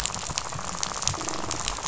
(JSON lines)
{"label": "biophony, rattle", "recorder": "SoundTrap 500"}